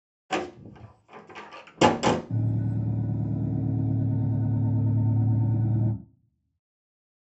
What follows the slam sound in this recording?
engine